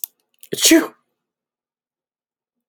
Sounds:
Sneeze